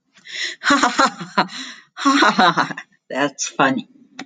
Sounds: Laughter